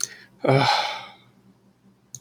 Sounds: Sigh